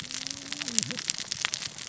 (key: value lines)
label: biophony, cascading saw
recorder: SoundTrap 600 or HydroMoth